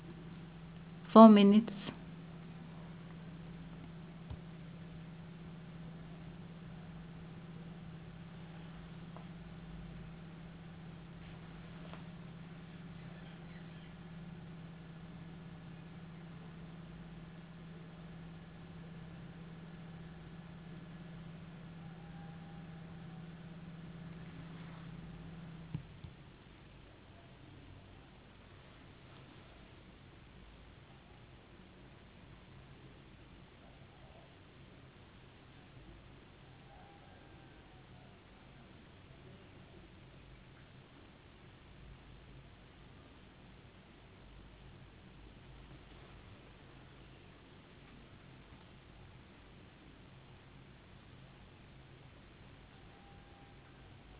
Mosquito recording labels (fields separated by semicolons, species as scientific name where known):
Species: no mosquito; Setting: insect culture